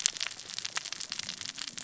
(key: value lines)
label: biophony, cascading saw
recorder: SoundTrap 600 or HydroMoth